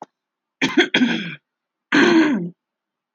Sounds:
Throat clearing